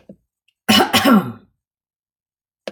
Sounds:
Throat clearing